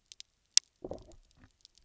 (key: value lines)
label: biophony, low growl
recorder: SoundTrap 300